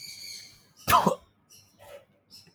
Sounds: Sneeze